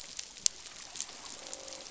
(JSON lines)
{"label": "biophony, croak", "recorder": "SoundTrap 500"}